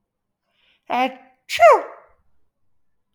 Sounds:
Sneeze